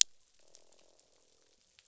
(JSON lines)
{"label": "biophony, croak", "recorder": "SoundTrap 500"}